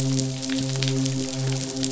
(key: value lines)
label: biophony, midshipman
recorder: SoundTrap 500